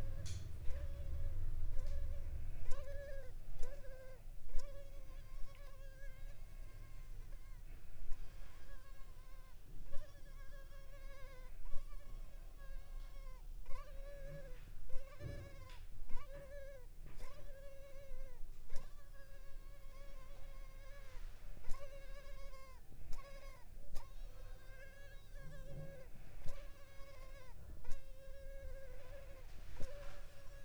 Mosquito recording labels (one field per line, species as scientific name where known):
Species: Culex pipiens complex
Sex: female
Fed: unfed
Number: one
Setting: cup